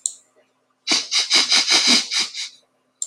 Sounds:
Sniff